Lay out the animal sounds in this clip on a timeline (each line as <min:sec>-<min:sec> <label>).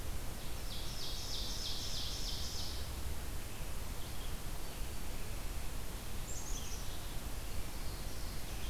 0:00.0-0:04.5 Red-eyed Vireo (Vireo olivaceus)
0:00.3-0:03.1 Ovenbird (Seiurus aurocapilla)
0:05.8-0:07.1 Black-capped Chickadee (Poecile atricapillus)
0:06.4-0:08.7 Red-eyed Vireo (Vireo olivaceus)
0:07.4-0:08.7 Black-throated Blue Warbler (Setophaga caerulescens)